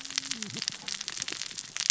{"label": "biophony, cascading saw", "recorder": "SoundTrap 600 or HydroMoth"}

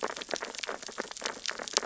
{"label": "biophony, sea urchins (Echinidae)", "recorder": "SoundTrap 600 or HydroMoth"}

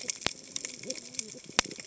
{"label": "biophony, cascading saw", "recorder": "HydroMoth"}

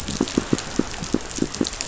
{"label": "biophony, pulse", "recorder": "SoundTrap 500"}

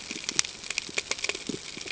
{"label": "ambient", "recorder": "HydroMoth"}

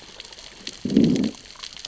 {"label": "biophony, growl", "recorder": "SoundTrap 600 or HydroMoth"}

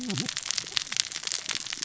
{"label": "biophony, cascading saw", "recorder": "SoundTrap 600 or HydroMoth"}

